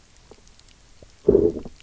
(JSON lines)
{"label": "biophony, low growl", "recorder": "SoundTrap 300"}